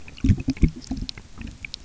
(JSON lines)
{"label": "geophony, waves", "recorder": "SoundTrap 300"}